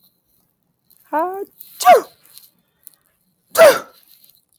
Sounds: Sneeze